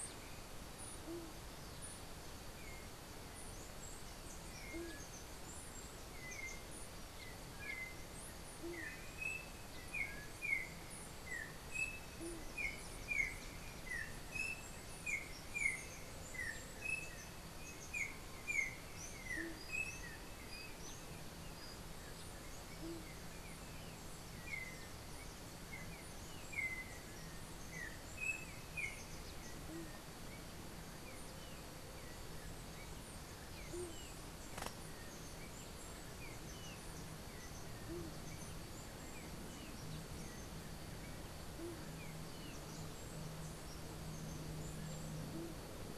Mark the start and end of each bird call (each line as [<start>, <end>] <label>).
[0.00, 7.08] unidentified bird
[0.00, 12.48] White-tipped Dove (Leptotila verreauxi)
[2.48, 39.78] Yellow-backed Oriole (Icterus chrysater)
[19.38, 23.18] White-tipped Dove (Leptotila verreauxi)
[29.58, 38.18] White-tipped Dove (Leptotila verreauxi)